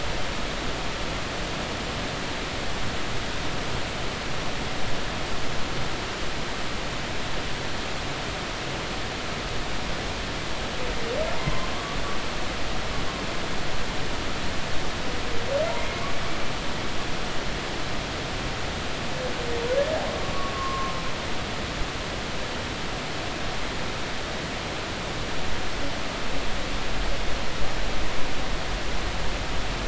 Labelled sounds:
11.4	12.0	humpback whale, 0.99 to 1.2 kHz
15.8	16.0	humpback whale, 2.0 to 2.3 kHz
20.5	20.9	humpback whale, 1.0 to 1.1 kHz

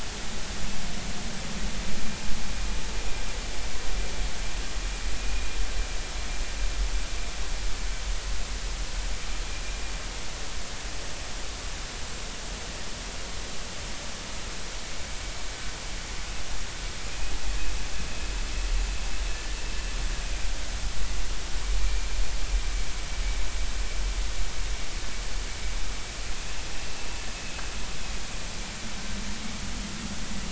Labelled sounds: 21.8	22.1	vessel noise, 2.3 to 2.4 kHz

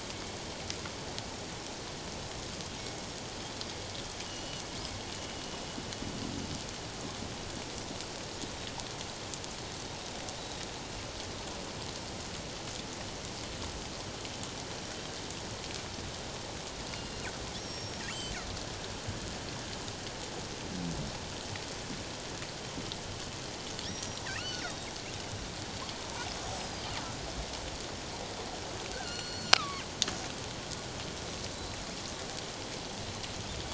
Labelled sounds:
4.2	4.6	killer whale, northern resident, G clan, 2.7 to 4.4 kHz
10.4	10.6	killer whale, northern resident, G clan, 3.7 to 4.0 kHz
16.9	18.0	killer whale, northern resident, G clan, 2.8 to 5.7 kHz
23.9	24.9	killer whale, northern resident, G clan, 2.2 to 5.8 kHz
26.3	26.7	killer whale, northern resident, G clan, 7.6 to 8.0 kHz
28.9	29.8	killer whale, northern resident, G clan, 1.1 to 7.3 kHz

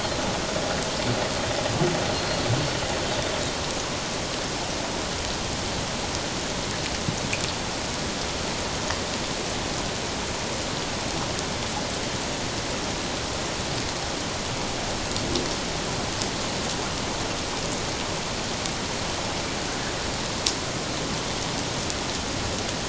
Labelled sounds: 2.1	2.5	Pacific white-sided dolphin, 4.1 to 4.4 kHz

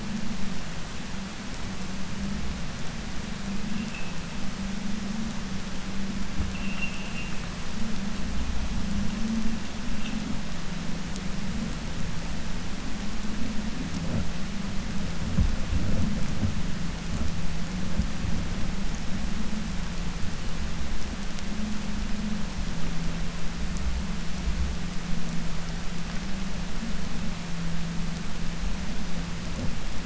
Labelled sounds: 6.4	7.3	vessel noise, 2.1 to 3.1 kHz

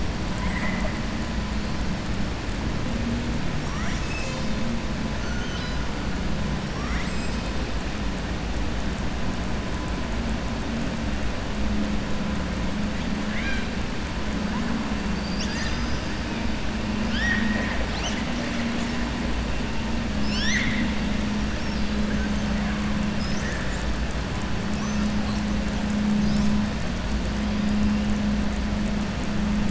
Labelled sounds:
0.3	1.0	killer whale, southern resident, 0.98 to 2.4 kHz
5.1	5.8	killer whale, southern resident, 1.4 to 6.4 kHz
6.7	7.6	killer whale, southern resident, 1.1 to 7.9 kHz
13.2	13.7	killer whale, southern resident, 1.5 to 4.9 kHz
17.0	17.8	killer whale, southern resident, 0.57 to 5.8 kHz
23.1	23.9	killer whale, southern resident, 5.1 to 8.0 kHz

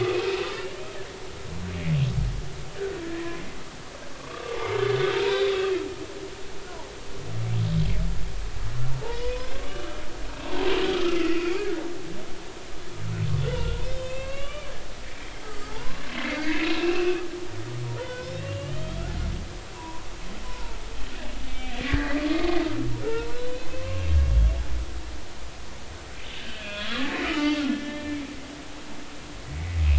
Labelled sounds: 3.0	3.4	humpback whale, 0.96 to 2.0 kHz
4.1	5.7	humpback whale, 0.83 to 4.0 kHz
9.1	10.0	humpback whale, 1.1 to 4.5 kHz
10.3	11.6	humpback whale, 1.2 to 2.9 kHz
13.4	14.7	humpback whale, 1.0 to 5.3 kHz
15.4	17.2	humpback whale, 0.83 to 2.8 kHz
18.0	19.0	humpback whale, 0.90 to 5.4 kHz
19.8	20.8	humpback whale, 0.90 to 1.1 kHz
21.5	23.4	humpback whale, 0.86 to 3.6 kHz
23.8	24.4	humpback whale, 1.0 to 2.8 kHz
26.4	28.2	humpback whale, 1.1 to 3.4 kHz

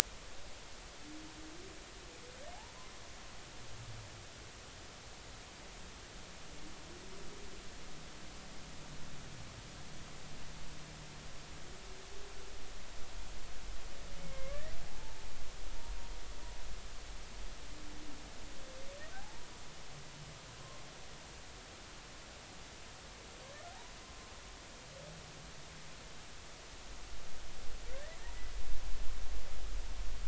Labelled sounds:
14.2	15.1	humpback whale, 0.80 to 2.2 kHz
19.1	19.5	humpback whale, 0.80 to 0.99 kHz
28.2	28.5	humpback whale, 1.8 to 2.0 kHz

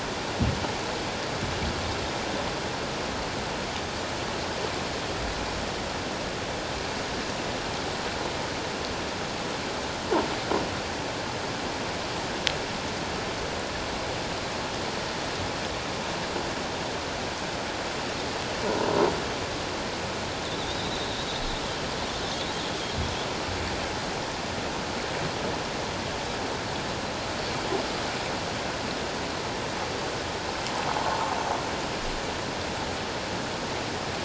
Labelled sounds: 20.5	20.9	Pacific white-sided dolphin, 3.4 to 4.0 kHz
31.0	31.3	water noise, 0.81 to 1.2 kHz

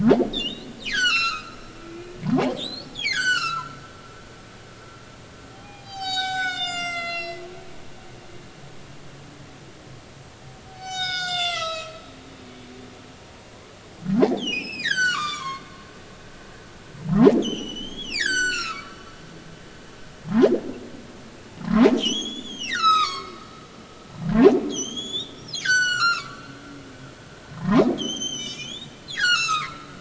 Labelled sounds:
0.3	1.6	humpback whale, 1.2 to 8.0 kHz
1.9	3.8	humpback whale, 0.80 to 7.8 kHz
5.7	7.5	humpback whale, 0.80 to 8.0 kHz
10.7	12.0	humpback whale, 0.80 to 8.0 kHz
12.4	12.7	humpback whale, 2.2 to 2.4 kHz
14.2	15.6	humpback whale, 0.80 to 7.9 kHz
17.1	19.0	humpback whale, 0.80 to 7.8 kHz
20.3	20.5	humpback whale, 0.80 to 1.1 kHz
21.6	23.5	humpback whale, 0.96 to 8.0 kHz
24.7	26.4	humpback whale, 1.0 to 7.6 kHz
27.5	29.9	humpback whale, 0.80 to 7.6 kHz

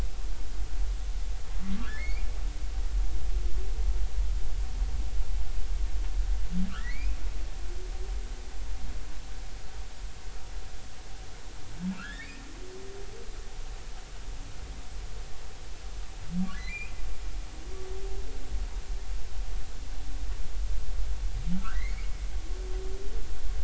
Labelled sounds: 1.8	2.3	humpback whale, 1.1 to 2.5 kHz
6.7	7.2	humpback whale, 1.1 to 2.7 kHz
12.0	12.4	humpback whale, 1.2 to 3.8 kHz
16.5	16.9	humpback whale, 1.9 to 2.7 kHz
21.7	22.1	humpback whale, 1.8 to 2.5 kHz

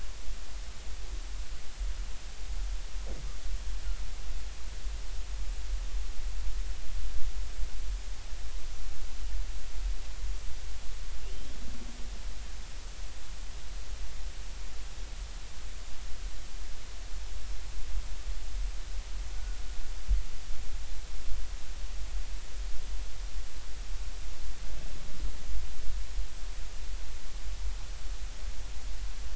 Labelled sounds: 11.2	11.6	killer whale, Bigg's (transient), 2.7 to 3.5 kHz
19.3	19.6	killer whale, Bigg's (transient), 1.4 to 1.5 kHz

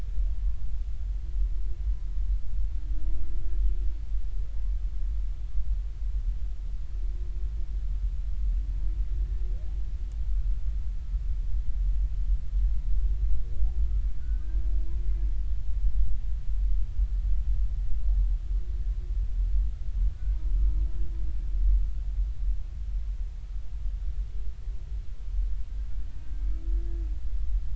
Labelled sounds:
14.2	14.6	humpback whale, 1.4 to 1.7 kHz

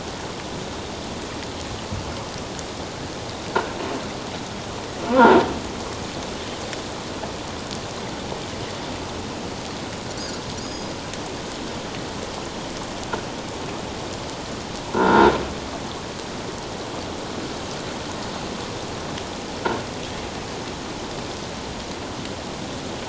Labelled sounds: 10.6	10.9	Pacific white-sided dolphin, 4.7 to 6.8 kHz
14.9	15.3	croaking sound likely from a nearby submerged object, 0.84 to 3.8 kHz

